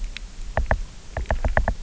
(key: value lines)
label: biophony, knock
recorder: SoundTrap 300